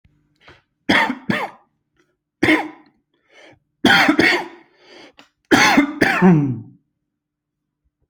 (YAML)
expert_labels:
- quality: good
  cough_type: dry
  dyspnea: false
  wheezing: false
  stridor: false
  choking: false
  congestion: false
  nothing: true
  diagnosis: lower respiratory tract infection
  severity: mild
age: 31
gender: male
respiratory_condition: false
fever_muscle_pain: true
status: symptomatic